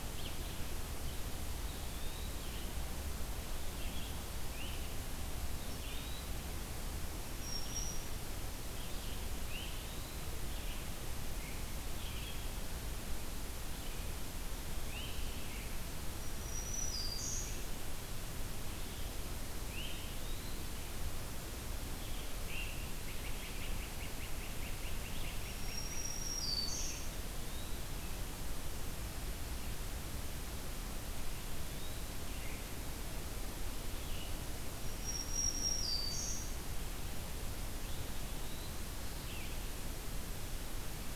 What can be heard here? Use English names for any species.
Red-eyed Vireo, Eastern Wood-Pewee, Great Crested Flycatcher, Black-throated Green Warbler